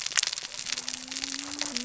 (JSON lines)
{"label": "biophony, cascading saw", "recorder": "SoundTrap 600 or HydroMoth"}